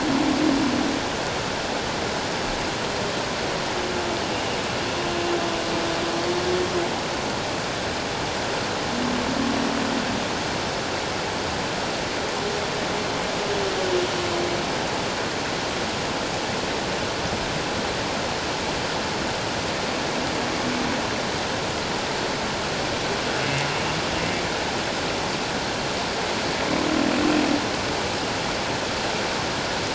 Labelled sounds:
4.3	4.6	humpback whale, 2.8 to 2.9 kHz

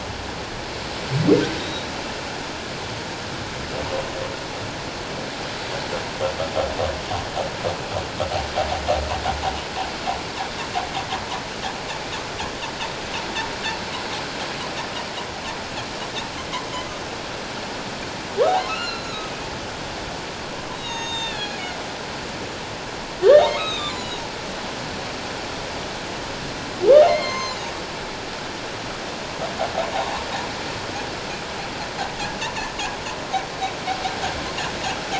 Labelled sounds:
1.6	1.9	humpback whale, 3.6 to 3.9 kHz
18.5	19.3	humpback whale, 0.78 to 4.3 kHz
20.7	21.6	humpback whale, 0.88 to 7.4 kHz
23.4	24.2	humpback whale, 0.88 to 7.3 kHz
27.1	27.7	humpback whale, 0.94 to 6.4 kHz

